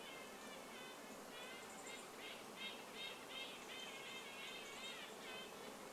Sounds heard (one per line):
Dark-eyed Junco call
Red-breasted Nuthatch call
Red-breasted Nuthatch song